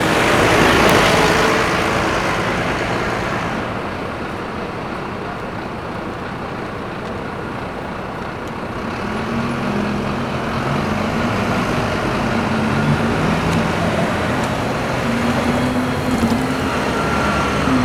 Is anyone honking a horn?
no